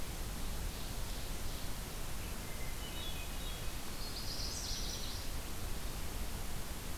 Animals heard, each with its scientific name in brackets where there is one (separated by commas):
Hermit Thrush (Catharus guttatus), Ovenbird (Seiurus aurocapilla), Chestnut-sided Warbler (Setophaga pensylvanica)